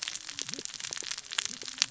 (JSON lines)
{"label": "biophony, cascading saw", "recorder": "SoundTrap 600 or HydroMoth"}